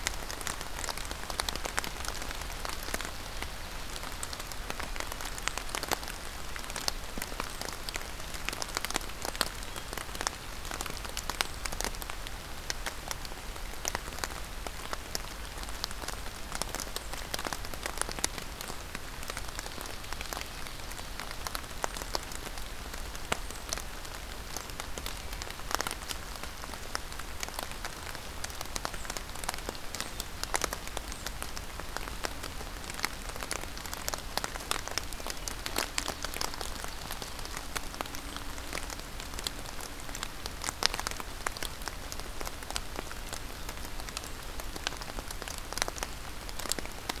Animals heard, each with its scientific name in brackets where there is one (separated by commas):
Black-capped Chickadee (Poecile atricapillus)